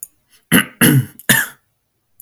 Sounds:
Cough